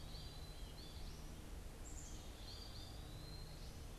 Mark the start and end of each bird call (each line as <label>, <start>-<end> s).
American Goldfinch (Spinus tristis), 0.0-4.0 s
Black-capped Chickadee (Poecile atricapillus), 0.0-4.0 s
Pileated Woodpecker (Dryocopus pileatus), 0.0-4.0 s